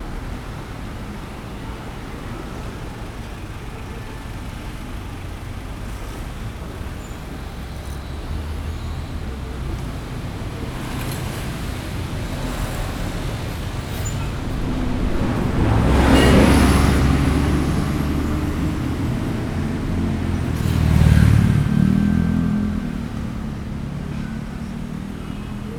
Is there a lot of talking?
no